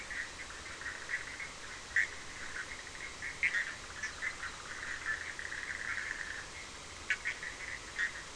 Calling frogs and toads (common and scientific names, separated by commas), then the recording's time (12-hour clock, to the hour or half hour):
Bischoff's tree frog (Boana bischoffi)
8:30pm